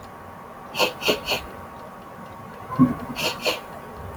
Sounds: Sniff